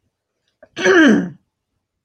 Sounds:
Throat clearing